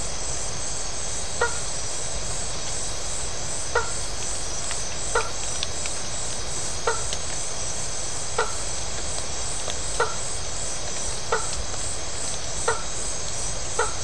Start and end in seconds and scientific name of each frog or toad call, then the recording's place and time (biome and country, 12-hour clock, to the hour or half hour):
1.2	1.9	Boana faber
3.5	14.0	Boana faber
Atlantic Forest, Brazil, 11pm